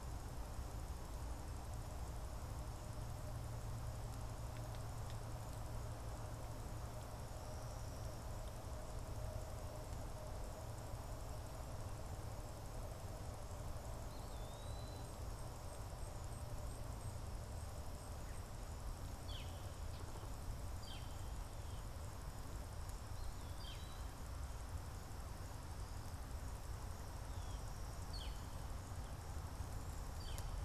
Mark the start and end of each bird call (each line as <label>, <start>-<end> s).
Eastern Wood-Pewee (Contopus virens), 13.9-15.2 s
Northern Flicker (Colaptes auratus), 18.9-30.6 s
Eastern Wood-Pewee (Contopus virens), 22.9-24.2 s